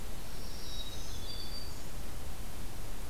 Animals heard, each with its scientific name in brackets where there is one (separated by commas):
Black-capped Chickadee (Poecile atricapillus), Black-throated Green Warbler (Setophaga virens), Yellow-rumped Warbler (Setophaga coronata)